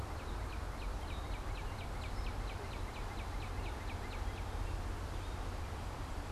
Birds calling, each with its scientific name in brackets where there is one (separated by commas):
Gray Catbird (Dumetella carolinensis), Northern Cardinal (Cardinalis cardinalis)